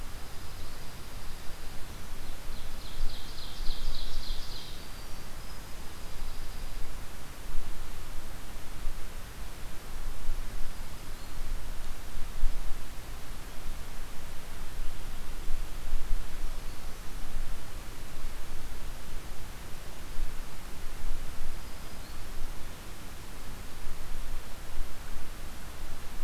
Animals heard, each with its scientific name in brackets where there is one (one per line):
Black-throated Green Warbler (Setophaga virens)
Dark-eyed Junco (Junco hyemalis)
Ovenbird (Seiurus aurocapilla)
Winter Wren (Troglodytes hiemalis)